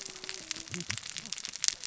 {"label": "biophony, cascading saw", "recorder": "SoundTrap 600 or HydroMoth"}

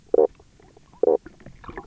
{"label": "biophony, knock croak", "recorder": "SoundTrap 300"}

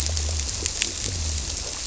{"label": "biophony", "recorder": "SoundTrap 300"}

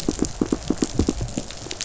{"label": "biophony, pulse", "recorder": "SoundTrap 500"}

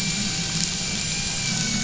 {"label": "anthrophony, boat engine", "recorder": "SoundTrap 500"}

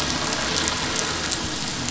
{"label": "anthrophony, boat engine", "recorder": "SoundTrap 500"}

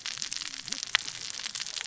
{"label": "biophony, cascading saw", "recorder": "SoundTrap 600 or HydroMoth"}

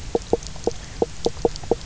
{"label": "biophony, knock croak", "recorder": "SoundTrap 300"}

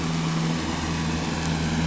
{"label": "anthrophony, boat engine", "recorder": "SoundTrap 500"}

